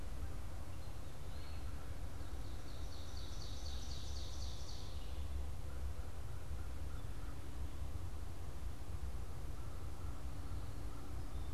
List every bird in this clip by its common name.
Eastern Wood-Pewee, Ovenbird, American Crow